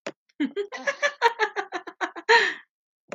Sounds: Laughter